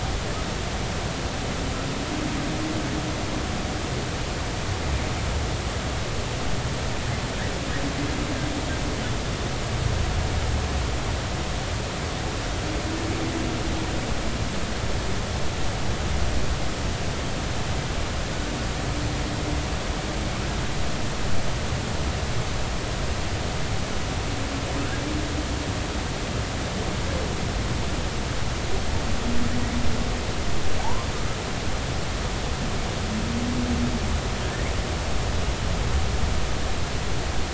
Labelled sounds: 30.8	31.1	humpback whale, 0.80 to 1.2 kHz

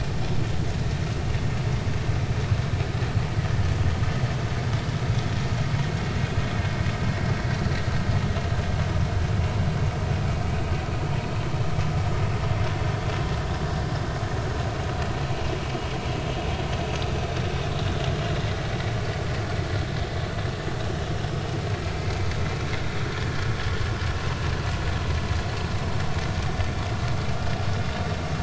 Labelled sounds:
16.8	17.0	vessel noise, 6.0 to 6.2 kHz

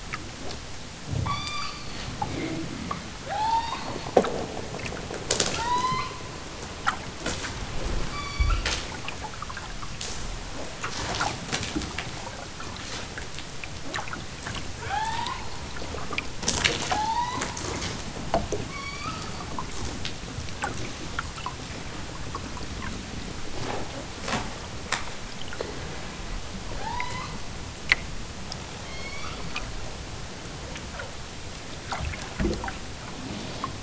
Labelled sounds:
1.2	1.9	killer whale, southern Alaska resident, 0.78 to 8.0 kHz
3.1	3.9	killer whale, southern Alaska resident, 0.32 to 7.0 kHz
5.5	6.3	killer whale, southern Alaska resident, 0.69 to 6.8 kHz
8.0	8.6	killer whale, southern Alaska resident, 0.87 to 8.0 kHz
14.8	15.4	killer whale, southern Alaska resident, 0.41 to 5.9 kHz
16.8	17.5	killer whale, southern Alaska resident, 0.32 to 6.6 kHz
18.6	19.3	killer whale, southern Alaska resident, 0.78 to 7.3 kHz
26.6	27.4	killer whale, southern Alaska resident, 0.41 to 6.7 kHz
28.8	29.5	killer whale, southern Alaska resident, 0.73 to 7.0 kHz

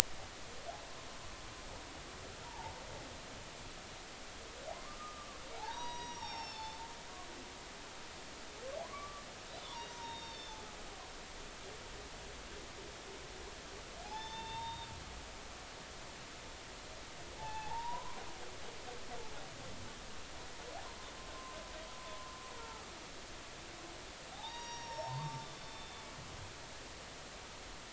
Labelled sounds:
2.4	2.8	humpback whale, 0.80 to 0.99 kHz
4.7	6.8	humpback whale, 0.80 to 5.8 kHz
8.8	10.6	humpback whale, 0.86 to 4.6 kHz
14.0	14.9	humpback whale, 0.80 to 5.4 kHz
17.4	18.2	humpback whale, 0.80 to 2.7 kHz
22.5	22.9	humpback whale, 0.80 to 1.4 kHz
24.3	26.1	humpback whale, 0.80 to 5.8 kHz

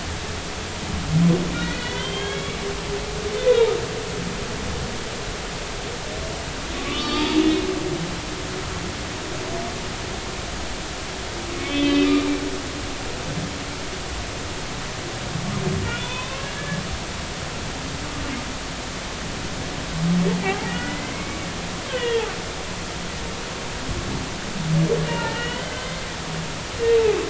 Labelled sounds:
1.5	2.7	humpback whale, 1.3 to 3.4 kHz
3.3	3.7	humpback whale, 1.9 to 2.6 kHz
6.9	7.4	humpback whale, 1.1 to 4.7 kHz
11.6	12.1	humpback whale, 2.0 to 3.5 kHz
15.9	16.8	humpback whale, 0.93 to 3.7 kHz
20.4	21.4	humpback whale, 0.80 to 2.3 kHz
21.9	22.3	humpback whale, 1.8 to 3.4 kHz
25.1	26.1	humpback whale, 0.86 to 3.1 kHz

